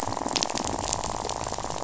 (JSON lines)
{"label": "biophony, rattle", "recorder": "SoundTrap 500"}